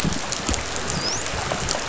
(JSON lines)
{"label": "biophony, dolphin", "recorder": "SoundTrap 500"}